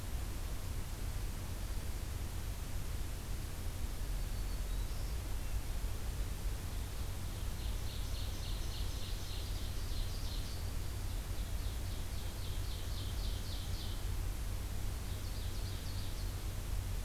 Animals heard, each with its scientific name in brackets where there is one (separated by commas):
Ovenbird (Seiurus aurocapilla), Black-throated Green Warbler (Setophaga virens)